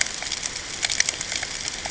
{"label": "ambient", "recorder": "HydroMoth"}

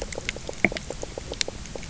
{"label": "biophony, knock croak", "recorder": "SoundTrap 300"}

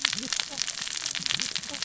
{"label": "biophony, cascading saw", "recorder": "SoundTrap 600 or HydroMoth"}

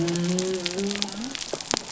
{"label": "biophony", "recorder": "SoundTrap 300"}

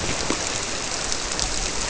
{"label": "biophony", "recorder": "SoundTrap 300"}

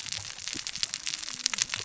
{"label": "biophony, cascading saw", "recorder": "SoundTrap 600 or HydroMoth"}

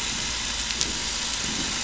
{"label": "anthrophony, boat engine", "recorder": "SoundTrap 500"}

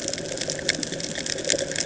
{"label": "ambient", "recorder": "HydroMoth"}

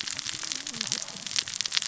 {"label": "biophony, cascading saw", "recorder": "SoundTrap 600 or HydroMoth"}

